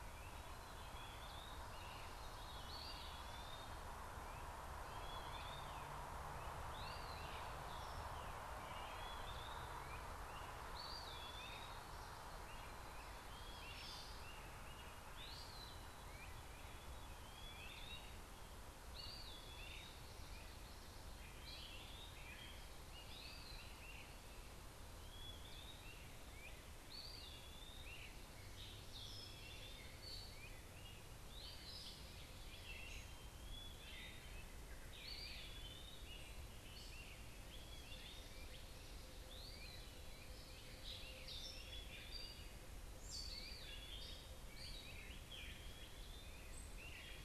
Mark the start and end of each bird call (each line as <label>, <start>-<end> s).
Eastern Wood-Pewee (Contopus virens), 0.0-46.6 s
Great Crested Flycatcher (Myiarchus crinitus), 0.0-47.1 s
Veery (Catharus fuscescens), 1.3-3.3 s
Gray Catbird (Dumetella carolinensis), 13.5-14.2 s
Gray Catbird (Dumetella carolinensis), 28.3-38.9 s
Gray Catbird (Dumetella carolinensis), 40.3-46.2 s